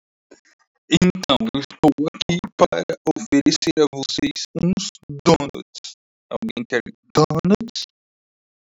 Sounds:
Sniff